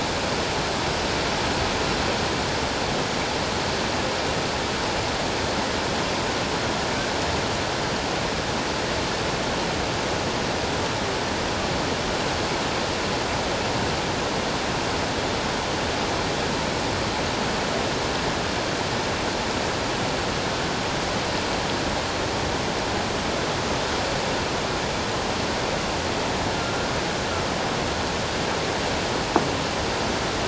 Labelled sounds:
26.5	26.9	humpback whale, 1.2 to 1.4 kHz

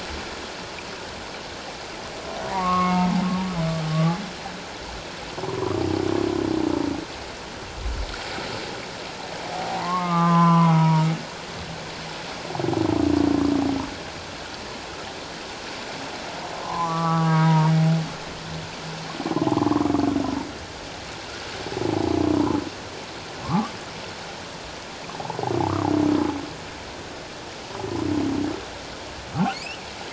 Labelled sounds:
2.5	3.1	humpback whale, 0.88 to 2.2 kHz
3.9	4.2	humpback whale, 1.1 to 1.2 kHz
5.4	5.7	humpback whale, 0.81 to 1.2 kHz
9.7	11.1	humpback whale, 0.84 to 1.4 kHz
16.5	17.7	humpback whale, 0.78 to 2.0 kHz
19.5	19.8	humpback whale, 0.97 to 1.2 kHz
23.4	23.7	humpback whale, 0.97 to 1.3 kHz
29.5	29.8	humpback whale, 2.1 to 3.1 kHz

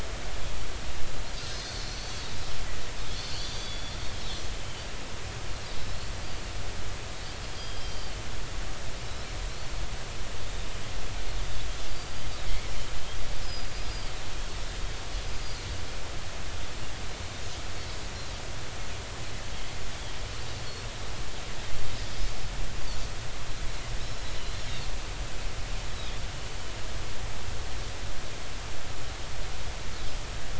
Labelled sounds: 1.4	2.3	Pacific white-sided dolphin, 4.0 to 4.6 kHz
3.1	4.0	Pacific white-sided dolphin, 3.2 to 4.7 kHz
7.4	8.1	Pacific white-sided dolphin, 3.1 to 5.1 kHz
11.9	12.2	Pacific white-sided dolphin, 4.6 to 4.9 kHz
13.4	14.1	Pacific white-sided dolphin, 4.7 to 5.2 kHz
19.9	20.1	Pacific white-sided dolphin, 3.1 to 3.5 kHz
24.0	24.3	Pacific white-sided dolphin, 5.1 to 5.4 kHz

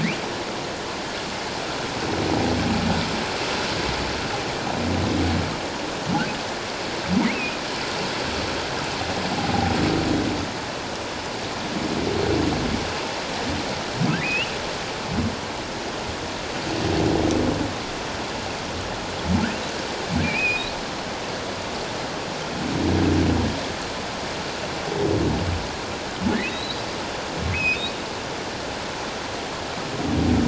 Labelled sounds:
7.3	7.6	humpback whale, 2.4 to 2.7 kHz
14.2	14.5	humpback whale, 2.3 to 3.0 kHz
20.2	20.7	humpback whale, 2.2 to 5.1 kHz
26.5	27.9	humpback whale, 2.2 to 4.1 kHz

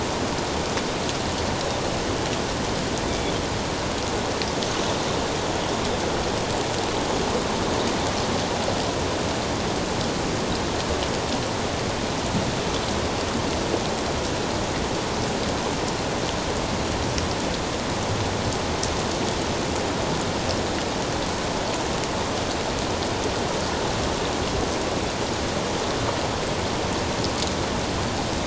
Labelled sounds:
3.1	3.3	Pacific white-sided dolphin, 3.2 to 3.6 kHz

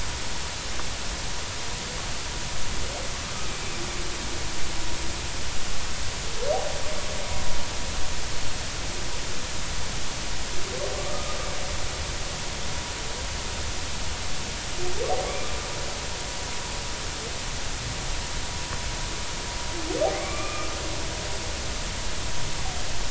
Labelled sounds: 11.1	11.4	humpback whale, 1.1 to 1.3 kHz
20.1	20.7	humpback whale, 1.1 to 2.5 kHz

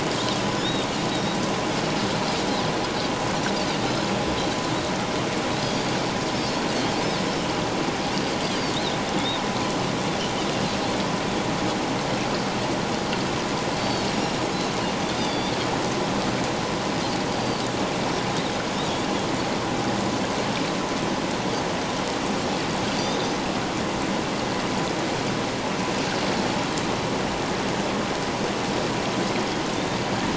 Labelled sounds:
0.6	1.4	Pacific white-sided dolphin, 3.4 to 4.0 kHz
6.3	6.6	Pacific white-sided dolphin, 5.0 to 5.5 kHz
8.7	9.0	Pacific white-sided dolphin, 3.5 to 4.3 kHz
13.8	14.4	Pacific white-sided dolphin, 4.3 to 5.7 kHz
15.1	15.5	Pacific white-sided dolphin, 3.3 to 5.0 kHz
17.3	17.6	Pacific white-sided dolphin, 4.2 to 4.9 kHz
23.0	23.2	Pacific white-sided dolphin, 3.4 to 3.8 kHz

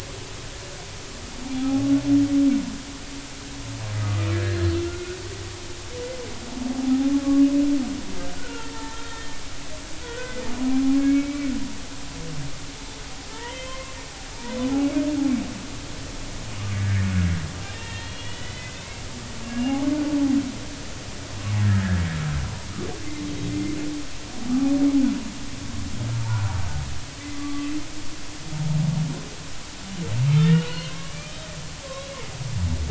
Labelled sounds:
1.4	1.9	humpback whale, 0.80 to 0.93 kHz
4.0	5.2	humpback whale, 1.1 to 4.2 kHz
6.7	7.1	humpback whale, 0.80 to 0.86 kHz
8.3	9.4	humpback whale, 0.83 to 3.7 kHz
10.0	10.4	humpback whale, 1.4 to 1.6 kHz
11.0	11.5	humpback whale, 1.6 to 2.4 kHz
13.3	14.0	humpback whale, 0.86 to 3.2 kHz
14.8	15.0	humpback whale, 2.1 to 2.3 kHz
17.7	18.8	humpback whale, 1.8 to 3.5 kHz
19.5	19.8	humpback whale, 2.7 to 2.9 kHz
23.5	23.7	humpback whale, 2.0 to 2.1 kHz
26.2	26.6	humpback whale, 0.80 to 1.0 kHz
27.3	27.7	humpback whale, 1.1 to 1.2 kHz
30.4	31.4	humpback whale, 1.0 to 4.4 kHz
31.9	32.2	humpback whale, 3.7 to 4.0 kHz

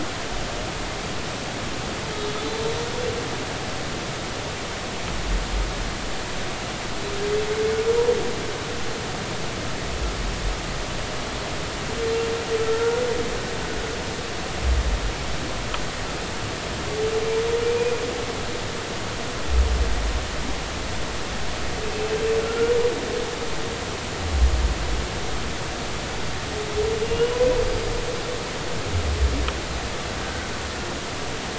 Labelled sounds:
2.4	2.7	humpback whale, 3.9 to 4.1 kHz
12.6	13.0	humpback whale, 1.3 to 1.5 kHz
27.0	27.9	humpback whale, 2.8 to 4.9 kHz
30.2	30.5	humpback whale, 1.4 to 1.6 kHz

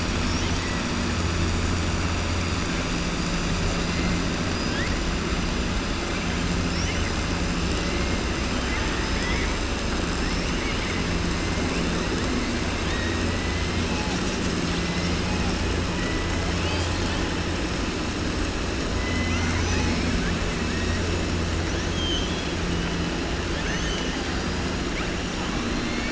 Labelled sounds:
0.3	0.8	killer whale, southern resident, 1.9 to 4.0 kHz
9.0	9.5	killer whale, southern resident, 1.3 to 5.3 kHz
16.5	17.2	killer whale, southern resident, 2.3 to 5.6 kHz
18.9	20.3	killer whale, southern resident, 0.83 to 6.9 kHz
21.6	22.5	killer whale, southern resident, 3.0 to 6.6 kHz
23.5	24.6	killer whale, southern resident, 1.6 to 6.5 kHz

